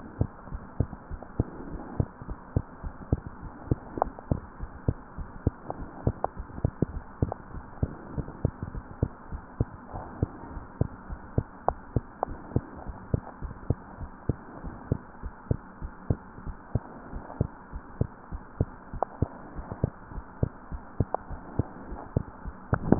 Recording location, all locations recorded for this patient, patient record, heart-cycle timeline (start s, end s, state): tricuspid valve (TV)
aortic valve (AV)+pulmonary valve (PV)+tricuspid valve (TV)+mitral valve (MV)
#Age: Child
#Sex: Male
#Height: 84.0 cm
#Weight: 11.2 kg
#Pregnancy status: False
#Murmur: Absent
#Murmur locations: nan
#Most audible location: nan
#Systolic murmur timing: nan
#Systolic murmur shape: nan
#Systolic murmur grading: nan
#Systolic murmur pitch: nan
#Systolic murmur quality: nan
#Diastolic murmur timing: nan
#Diastolic murmur shape: nan
#Diastolic murmur grading: nan
#Diastolic murmur pitch: nan
#Diastolic murmur quality: nan
#Outcome: Normal
#Campaign: 2015 screening campaign
0.00	0.18	unannotated
0.18	0.30	S2
0.30	0.50	diastole
0.50	0.64	S1
0.64	0.76	systole
0.76	0.90	S2
0.90	1.10	diastole
1.10	1.20	S1
1.20	1.38	systole
1.38	1.50	S2
1.50	1.68	diastole
1.68	1.82	S1
1.82	1.96	systole
1.96	2.10	S2
2.10	2.28	diastole
2.28	2.38	S1
2.38	2.52	systole
2.52	2.66	S2
2.66	2.84	diastole
2.84	2.94	S1
2.94	3.08	systole
3.08	3.22	S2
3.22	3.42	diastole
3.42	3.52	S1
3.52	3.66	systole
3.66	3.80	S2
3.80	3.98	diastole
3.98	4.12	S1
4.12	4.26	systole
4.26	4.42	S2
4.42	4.60	diastole
4.60	4.70	S1
4.70	4.84	systole
4.84	4.96	S2
4.96	5.18	diastole
5.18	5.28	S1
5.28	5.40	systole
5.40	5.56	S2
5.56	5.76	diastole
5.76	5.88	S1
5.88	6.04	systole
6.04	6.18	S2
6.18	6.38	diastole
6.38	6.46	S1
6.46	6.58	systole
6.58	6.72	S2
6.72	6.90	diastole
6.90	7.04	S1
7.04	7.18	systole
7.18	7.34	S2
7.34	7.54	diastole
7.54	7.64	S1
7.64	7.78	systole
7.78	7.94	S2
7.94	8.12	diastole
8.12	8.26	S1
8.26	8.40	systole
8.40	8.54	S2
8.54	8.72	diastole
8.72	8.84	S1
8.84	8.98	systole
8.98	9.10	S2
9.10	9.32	diastole
9.32	9.42	S1
9.42	9.56	systole
9.56	9.72	S2
9.72	9.94	diastole
9.94	10.06	S1
10.06	10.20	systole
10.20	10.30	S2
10.30	10.50	diastole
10.50	10.64	S1
10.64	10.76	systole
10.76	10.90	S2
10.90	11.10	diastole
11.10	11.20	S1
11.20	11.34	systole
11.34	11.48	S2
11.48	11.68	diastole
11.68	11.78	S1
11.78	11.92	systole
11.92	12.06	S2
12.06	12.28	diastole
12.28	12.40	S1
12.40	12.54	systole
12.54	12.64	S2
12.64	12.86	diastole
12.86	12.96	S1
12.96	13.10	systole
13.10	13.22	S2
13.22	13.42	diastole
13.42	13.56	S1
13.56	13.68	systole
13.68	13.80	S2
13.80	14.00	diastole
14.00	14.10	S1
14.10	14.28	systole
14.28	14.40	S2
14.40	14.64	diastole
14.64	14.78	S1
14.78	14.90	systole
14.90	15.02	S2
15.02	15.24	diastole
15.24	15.32	S1
15.32	15.46	systole
15.46	15.60	S2
15.60	15.82	diastole
15.82	15.92	S1
15.92	16.08	systole
16.08	16.20	S2
16.20	16.44	diastole
16.44	16.56	S1
16.56	16.74	systole
16.74	16.86	S2
16.86	17.10	diastole
17.10	17.24	S1
17.24	17.38	systole
17.38	17.50	S2
17.50	17.74	diastole
17.74	17.82	S1
17.82	17.96	systole
17.96	18.08	S2
18.08	18.32	diastole
18.32	18.42	S1
18.42	18.56	systole
18.56	18.72	S2
18.72	18.94	diastole
18.94	19.02	S1
19.02	19.18	systole
19.18	19.32	S2
19.32	19.56	diastole
19.56	19.68	S1
19.68	19.82	systole
19.82	19.94	S2
19.94	20.12	diastole
20.12	20.24	S1
20.24	20.38	systole
20.38	20.54	S2
20.54	20.72	diastole
20.72	20.82	S1
20.82	20.96	systole
20.96	21.10	S2
21.10	21.30	diastole
21.30	21.42	S1
21.42	21.54	systole
21.54	21.68	S2
21.68	21.88	diastole
21.88	22.00	S1
22.00	22.12	systole
22.12	22.24	S2
22.24	22.46	diastole
22.46	22.99	unannotated